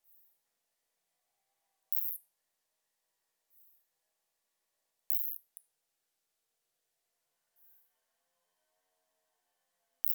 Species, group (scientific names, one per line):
Isophya plevnensis
Orthoptera